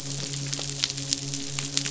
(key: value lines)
label: biophony, midshipman
recorder: SoundTrap 500